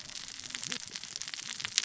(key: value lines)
label: biophony, cascading saw
recorder: SoundTrap 600 or HydroMoth